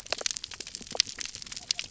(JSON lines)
{"label": "biophony", "recorder": "SoundTrap 300"}